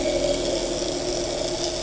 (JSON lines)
{"label": "anthrophony, boat engine", "recorder": "HydroMoth"}